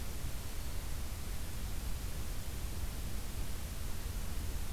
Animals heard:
forest ambience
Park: Acadia National Park